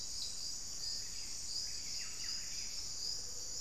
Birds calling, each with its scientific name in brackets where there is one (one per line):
Buff-breasted Wren (Cantorchilus leucotis)
unidentified bird